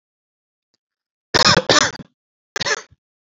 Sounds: Cough